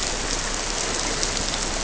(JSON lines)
{"label": "biophony", "recorder": "SoundTrap 300"}